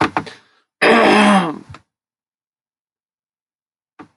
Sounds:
Throat clearing